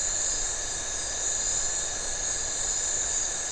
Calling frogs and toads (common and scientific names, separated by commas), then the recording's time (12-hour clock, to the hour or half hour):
Phyllomedusa distincta
~8pm